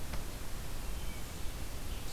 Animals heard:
forest ambience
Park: Marsh-Billings-Rockefeller National Historical Park